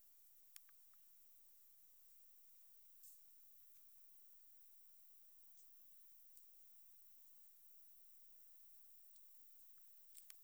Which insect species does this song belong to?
Leptophyes punctatissima